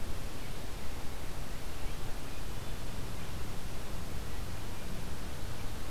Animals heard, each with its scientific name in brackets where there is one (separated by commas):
Hermit Thrush (Catharus guttatus)